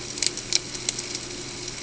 {"label": "ambient", "recorder": "HydroMoth"}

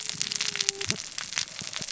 {"label": "biophony, cascading saw", "recorder": "SoundTrap 600 or HydroMoth"}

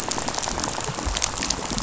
{"label": "biophony, rattle", "recorder": "SoundTrap 500"}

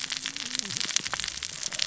{"label": "biophony, cascading saw", "recorder": "SoundTrap 600 or HydroMoth"}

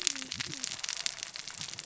{"label": "biophony, cascading saw", "recorder": "SoundTrap 600 or HydroMoth"}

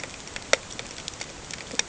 {"label": "ambient", "recorder": "HydroMoth"}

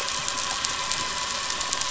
{"label": "anthrophony, boat engine", "recorder": "SoundTrap 500"}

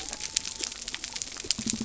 {"label": "biophony", "recorder": "SoundTrap 300"}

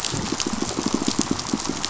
{"label": "biophony, pulse", "recorder": "SoundTrap 500"}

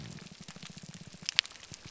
{"label": "biophony, grouper groan", "recorder": "SoundTrap 300"}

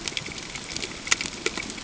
{"label": "ambient", "recorder": "HydroMoth"}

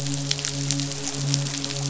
{"label": "biophony, midshipman", "recorder": "SoundTrap 500"}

